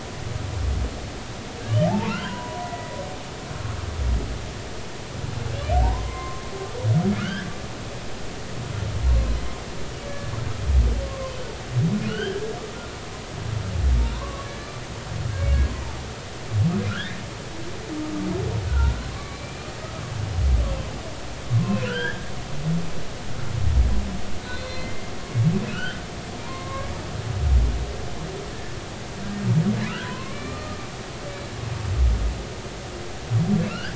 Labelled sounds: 1.8	2.9	humpback whale, 0.80 to 3.0 kHz
5.8	6.5	humpback whale, 0.80 to 2.3 kHz
7.2	7.5	humpback whale, 1.2 to 3.4 kHz
10.1	11.3	humpback whale, 0.99 to 1.8 kHz
12.1	12.5	humpback whale, 1.3 to 3.3 kHz
14.1	14.7	humpback whale, 0.93 to 1.8 kHz
15.4	15.9	humpback whale, 0.83 to 2.3 kHz
16.9	17.2	humpback whale, 1.3 to 1.9 kHz
18.6	19.7	humpback whale, 1.0 to 2.5 kHz
21.6	22.3	humpback whale, 0.99 to 3.5 kHz
24.4	25.1	humpback whale, 2.0 to 4.3 kHz
25.6	26.0	humpback whale, 1.2 to 3.2 kHz
26.4	26.9	humpback whale, 0.90 to 1.2 kHz
30.0	30.8	humpback whale, 0.96 to 2.4 kHz
33.6	33.9	humpback whale, 1.2 to 3.0 kHz

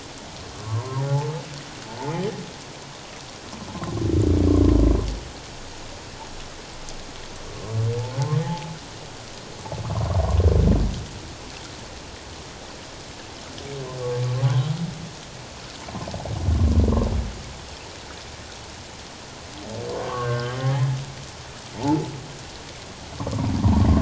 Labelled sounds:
0.6	1.3	humpback whale, 0.81 to 1.2 kHz
8.4	8.7	humpback whale, 0.78 to 0.94 kHz
14.5	14.7	humpback whale, 3.0 to 3.3 kHz
20.0	20.6	humpback whale, 0.97 to 1.7 kHz
21.7	22.1	humpback whale, 0.81 to 0.97 kHz

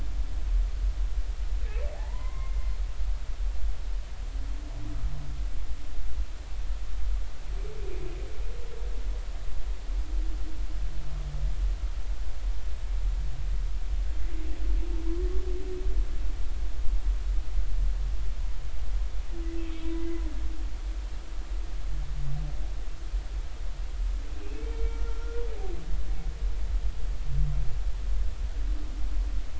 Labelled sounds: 1.9	2.7	humpback whale, 0.80 to 2.2 kHz
19.7	20.2	humpback whale, 2.0 to 2.7 kHz
24.4	25.4	humpback whale, 1.3 to 2.7 kHz

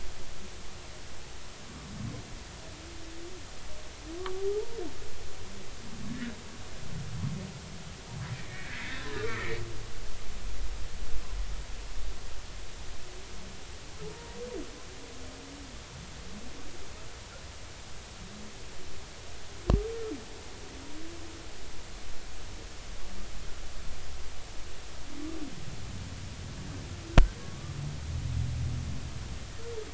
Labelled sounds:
4.2	4.8	humpback whale, 0.80 to 1.3 kHz
6.1	6.4	humpback whale, 1.6 to 2.0 kHz
8.3	9.5	humpback whale, 1.1 to 3.6 kHz
14.1	14.4	humpback whale, 0.90 to 0.99 kHz
27.4	27.8	humpback whale, 1.1 to 1.2 kHz

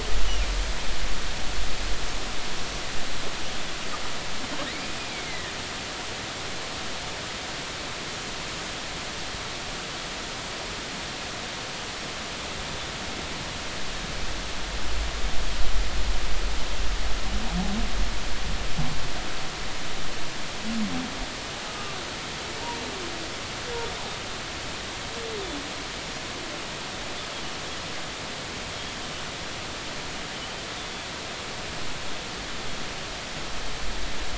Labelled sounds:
4.7	5.5	humpback whale, 1.7 to 2.5 kHz
21.7	22.0	humpback whale, 1.1 to 1.3 kHz
28.8	29.0	Pacific white-sided dolphin, 3.2 to 3.4 kHz

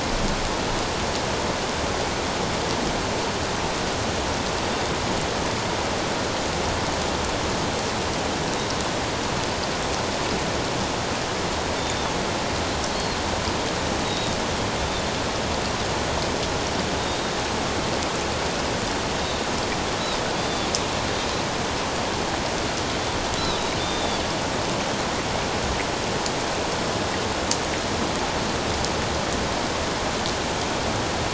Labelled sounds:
11.8	12.1	Pacific white-sided dolphin, 3.4 to 3.7 kHz
14.0	14.4	Pacific white-sided dolphin, 3.6 to 3.9 kHz
17.0	17.3	Pacific white-sided dolphin, 3.6 to 3.8 kHz
20.4	20.7	Pacific white-sided dolphin, 3.3 to 4.8 kHz
23.4	24.2	Pacific white-sided dolphin, 3.4 to 4.1 kHz

